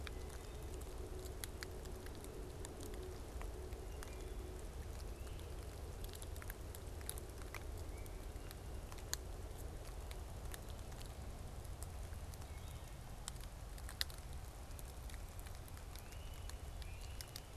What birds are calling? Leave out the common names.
Myiarchus crinitus